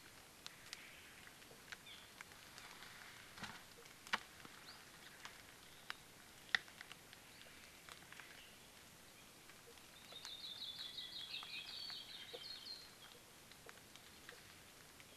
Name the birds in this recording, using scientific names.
Himatione sanguinea, Loxops mana